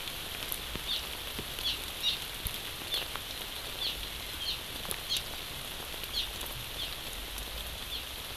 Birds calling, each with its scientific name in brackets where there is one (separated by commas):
Hawaii Amakihi (Chlorodrepanis virens)